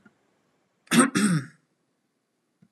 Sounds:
Throat clearing